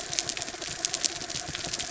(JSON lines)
{"label": "anthrophony, mechanical", "recorder": "SoundTrap 300"}